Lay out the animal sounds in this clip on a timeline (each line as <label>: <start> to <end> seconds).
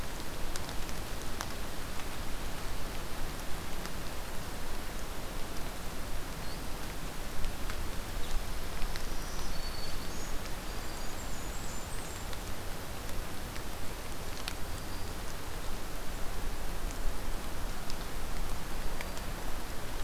Black-throated Green Warbler (Setophaga virens): 8.7 to 11.2 seconds
Blackburnian Warbler (Setophaga fusca): 10.5 to 12.3 seconds
Black-throated Green Warbler (Setophaga virens): 14.6 to 15.2 seconds
Black-throated Green Warbler (Setophaga virens): 18.6 to 19.3 seconds